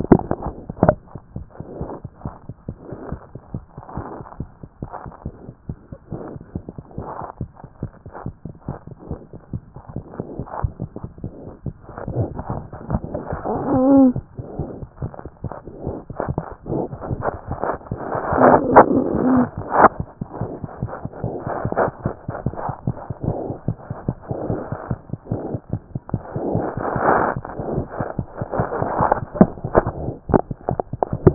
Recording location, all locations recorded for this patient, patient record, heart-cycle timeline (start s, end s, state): mitral valve (MV)
aortic valve (AV)+mitral valve (MV)
#Age: Child
#Sex: Female
#Height: 75.0 cm
#Weight: 10.2 kg
#Pregnancy status: False
#Murmur: Absent
#Murmur locations: nan
#Most audible location: nan
#Systolic murmur timing: nan
#Systolic murmur shape: nan
#Systolic murmur grading: nan
#Systolic murmur pitch: nan
#Systolic murmur quality: nan
#Diastolic murmur timing: nan
#Diastolic murmur shape: nan
#Diastolic murmur grading: nan
#Diastolic murmur pitch: nan
#Diastolic murmur quality: nan
#Outcome: Normal
#Campaign: 2014 screening campaign
0.00	1.36	unannotated
1.36	1.46	S1
1.46	1.60	systole
1.60	1.66	S2
1.66	1.80	diastole
1.80	1.90	S1
1.90	2.04	systole
2.04	2.12	S2
2.12	2.26	diastole
2.26	2.34	S1
2.34	2.48	systole
2.48	2.56	S2
2.56	2.70	diastole
2.70	2.78	S1
2.78	2.92	systole
2.92	2.98	S2
2.98	3.12	diastole
3.12	3.20	S1
3.20	3.34	systole
3.34	3.40	S2
3.40	3.54	diastole
3.54	3.64	S1
3.64	3.76	systole
3.76	3.84	S2
3.84	3.98	diastole
3.98	4.06	S1
4.06	4.18	systole
4.18	4.26	S2
4.26	4.40	diastole
4.40	4.50	S1
4.50	4.62	systole
4.62	4.70	S2
4.70	4.84	diastole
4.84	4.92	S1
4.92	5.06	systole
5.06	5.14	S2
5.14	5.26	diastole
5.26	5.34	S1
5.34	5.48	systole
5.48	5.56	S2
5.56	5.70	diastole
5.70	5.78	S1
5.78	5.92	systole
5.92	6.00	S2
6.00	6.14	diastole
6.14	6.22	S1
6.22	6.34	systole
6.34	6.42	S2
6.42	6.56	diastole
6.56	31.34	unannotated